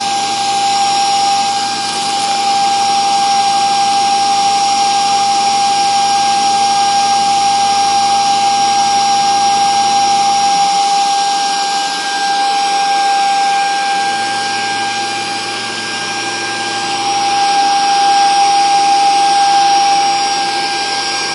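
0.0s A vacuum cleaner whirs and buzzes steadily. 21.3s

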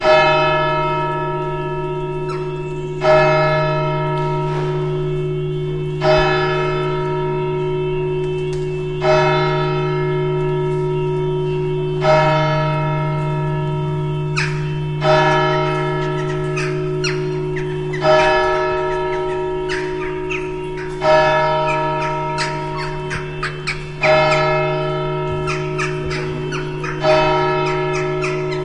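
0.0s A huge bell rings loudly every few seconds, fading into a deep rumbling vibration before the next strike. 28.6s
0.0s Light rain drips softly in the background. 28.6s
2.2s A jackdaw chirps with a sharp, high-pitched sound. 2.7s
14.2s A jackdaw chirps with a sharp, high-pitched sound. 14.6s
15.2s Jackdaws are repeatedly making high-pitched sharp calls. 24.6s
25.4s Jackdaws are repeatedly making high-pitched sharp calls. 28.6s
25.6s Rhythmic sounds in the background. 27.0s

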